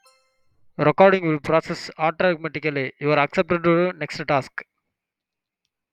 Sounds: Sneeze